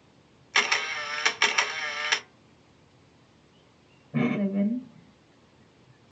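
At 0.52 seconds, the sound of a camera is heard. Then at 4.12 seconds, someone says "Seven."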